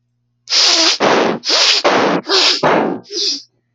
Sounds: Sniff